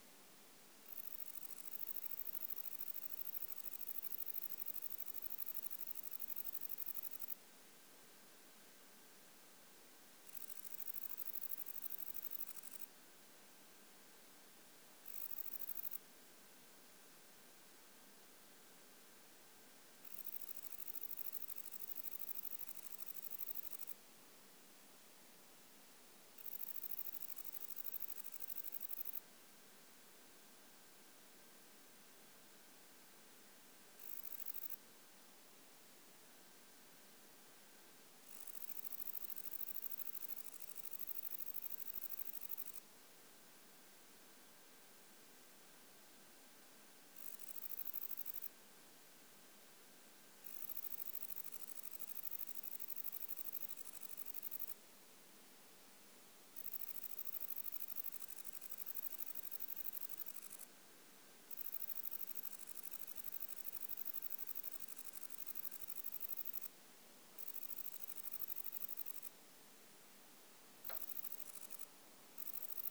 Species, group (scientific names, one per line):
Bicolorana bicolor
Orthoptera